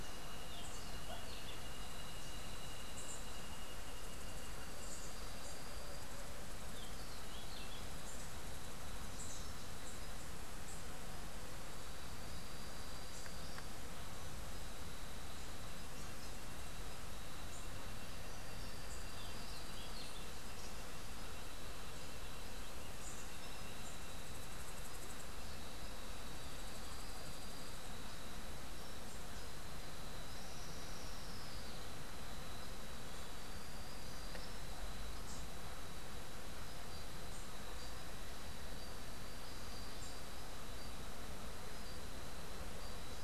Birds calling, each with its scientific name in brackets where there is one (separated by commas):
Cabanis's Wren (Cantorchilus modestus)